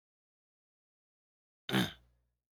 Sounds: Throat clearing